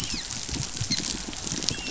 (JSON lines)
{"label": "biophony, dolphin", "recorder": "SoundTrap 500"}